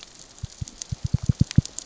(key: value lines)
label: biophony, knock
recorder: SoundTrap 600 or HydroMoth